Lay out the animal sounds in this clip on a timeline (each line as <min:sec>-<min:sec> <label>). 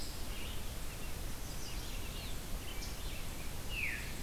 0:00.0-0:04.2 Red-eyed Vireo (Vireo olivaceus)
0:03.6-0:04.2 Veery (Catharus fuscescens)